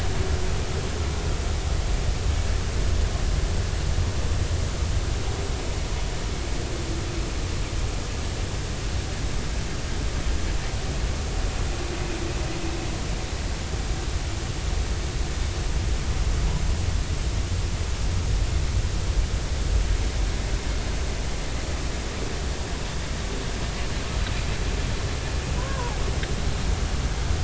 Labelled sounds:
25.6	26.0	humpback whale, 0.80 to 1.1 kHz

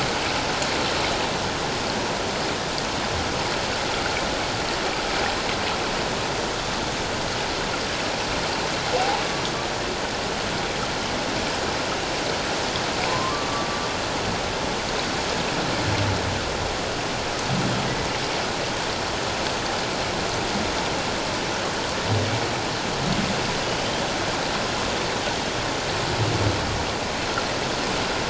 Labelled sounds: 9.0	9.2	humpback whale, 0.78 to 1.0 kHz
13.1	13.7	humpback whale, 0.84 to 1.2 kHz

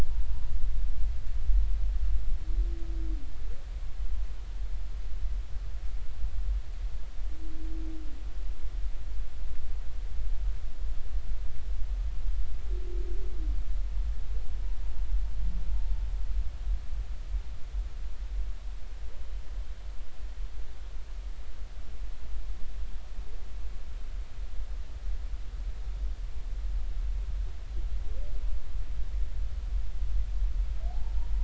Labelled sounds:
30.9	31.1	humpback whale, 0.80 to 0.96 kHz

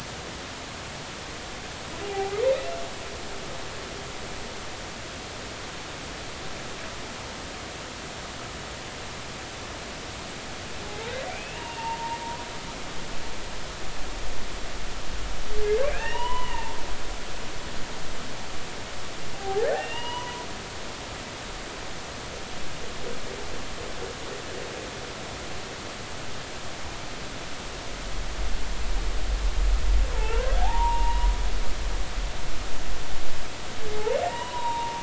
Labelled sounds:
2.0	2.4	humpback whale, 0.80 to 2.5 kHz
11.3	12.2	humpback whale, 0.83 to 2.9 kHz
15.8	17.7	humpback whale, 0.83 to 3.0 kHz
19.3	20.5	humpback whale, 0.80 to 5.0 kHz
30.1	31.3	humpback whale, 0.80 to 2.9 kHz
33.9	35.0	humpback whale, 0.80 to 3.8 kHz

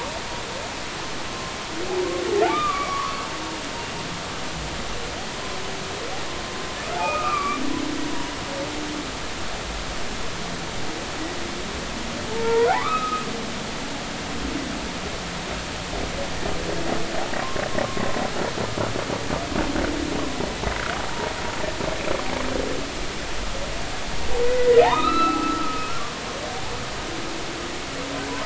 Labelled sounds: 2.5	3.2	humpback whale, 0.99 to 2.4 kHz
7.0	7.6	humpback whale, 1.0 to 2.6 kHz
12.3	13.2	humpback whale, 0.80 to 2.0 kHz
24.5	25.9	humpback whale, 0.80 to 4.0 kHz

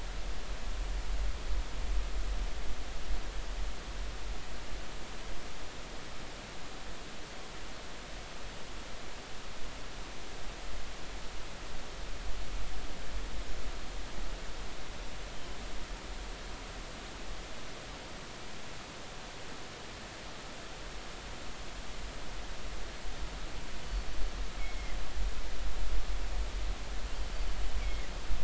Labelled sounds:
24.6	25.0	killer whale, northern resident, G clan, 2.0 to 2.3 kHz
27.8	28.0	killer whale, northern resident, G clan, 2.1 to 2.4 kHz

